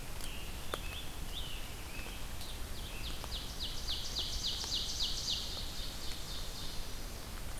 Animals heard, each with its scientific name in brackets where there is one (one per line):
Ovenbird (Seiurus aurocapilla)
Scarlet Tanager (Piranga olivacea)